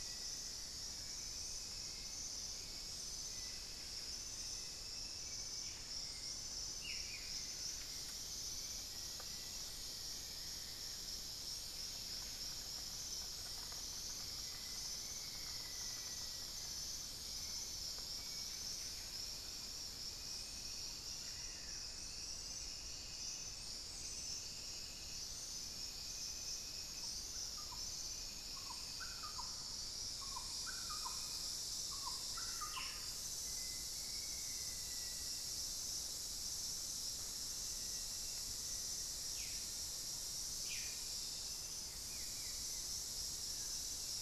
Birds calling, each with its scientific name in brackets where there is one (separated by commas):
Amazonian Barred-Woodcreeper (Dendrocolaptes certhia), unidentified bird, Buff-breasted Wren (Cantorchilus leucotis), Hauxwell's Thrush (Turdus hauxwelli), Black-faced Antthrush (Formicarius analis), Buff-throated Woodcreeper (Xiphorhynchus guttatus)